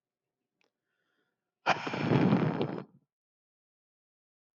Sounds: Sigh